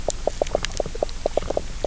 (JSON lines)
{"label": "biophony, knock croak", "recorder": "SoundTrap 300"}